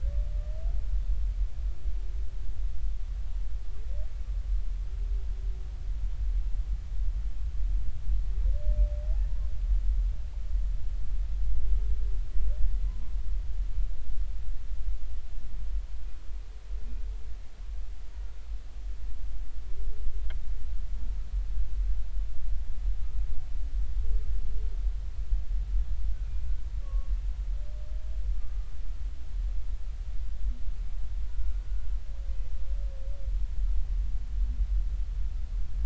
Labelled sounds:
26.8	27.1	humpback whale, 1.0 to 1.2 kHz
28.4	28.7	humpback whale, 1.1 to 1.2 kHz
31.3	31.6	humpback whale, 1.4 to 1.5 kHz

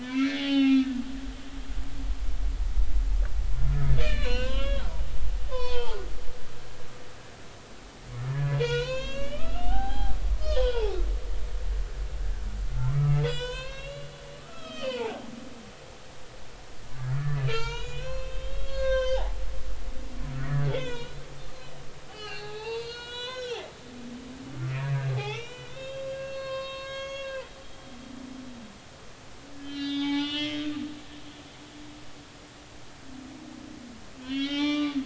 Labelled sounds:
0.0	0.9	humpback whale, 0.80 to 5.6 kHz
1.5	1.9	humpback whale, 1.2 to 2.3 kHz
4.0	4.9	humpback whale, 0.93 to 6.2 kHz
5.5	6.1	humpback whale, 1.2 to 4.1 kHz
6.5	7.0	humpback whale, 0.80 to 4.7 kHz
8.3	10.9	humpback whale, 0.80 to 7.4 kHz
12.8	15.2	humpback whale, 0.80 to 8.0 kHz
17.2	19.8	humpback whale, 0.80 to 7.1 kHz
20.7	21.2	humpback whale, 0.90 to 4.1 kHz
22.1	23.7	humpback whale, 0.80 to 7.4 kHz
24.7	27.4	humpback whale, 0.80 to 6.6 kHz
29.5	30.6	humpback whale, 0.80 to 5.7 kHz
34.2	35.0	humpback whale, 0.80 to 6.0 kHz

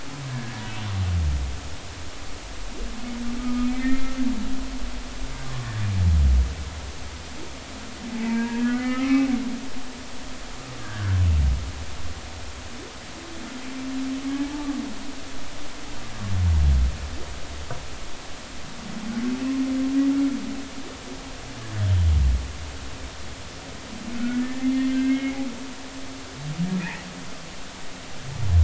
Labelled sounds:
0.3	0.6	humpback whale, 1.6 to 1.8 kHz
3.4	4.2	humpback whale, 1.2 to 2.4 kHz
8.1	9.3	humpback whale, 0.80 to 2.7 kHz
10.8	11.2	humpback whale, 1.3 to 1.7 kHz
24.2	25.7	humpback whale, 1.3 to 3.2 kHz
26.8	27.1	humpback whale, 1.6 to 2.1 kHz

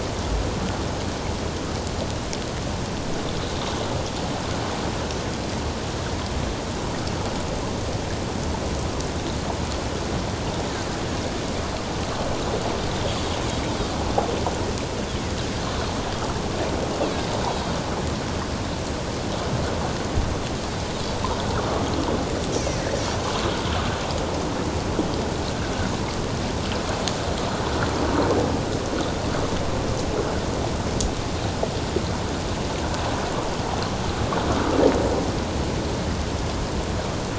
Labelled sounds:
22.5	22.8	Pacific white-sided dolphin, 5.5 to 6.6 kHz

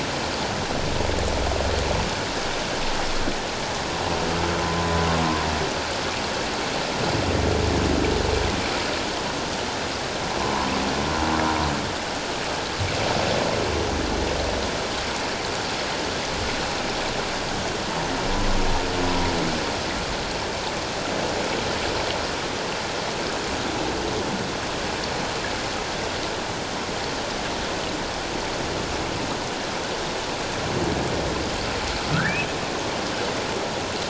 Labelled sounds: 4.7	5.0	humpback whale, 0.97 to 1.1 kHz
32.1	32.4	humpback whale, 1.2 to 2.0 kHz

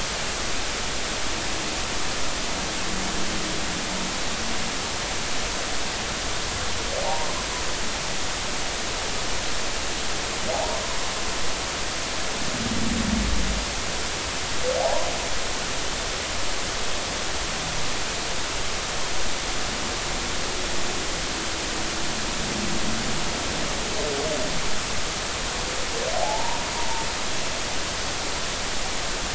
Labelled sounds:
7.0	7.3	humpback whale, 0.80 to 1.1 kHz
10.5	10.8	humpback whale, 0.80 to 1.1 kHz
14.8	15.1	humpback whale, 0.80 to 1.1 kHz
26.2	26.6	humpback whale, 0.80 to 0.99 kHz

